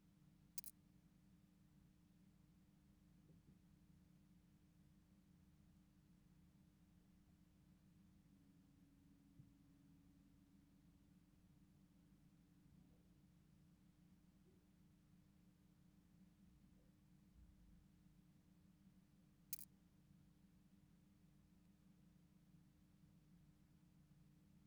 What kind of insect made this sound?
orthopteran